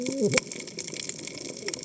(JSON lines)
{"label": "biophony, cascading saw", "recorder": "HydroMoth"}